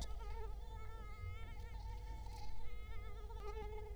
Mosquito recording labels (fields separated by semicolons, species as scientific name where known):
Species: Culex quinquefasciatus; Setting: cup